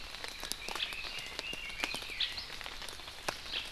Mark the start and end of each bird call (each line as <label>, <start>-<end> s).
Red-billed Leiothrix (Leiothrix lutea), 0.6-2.3 s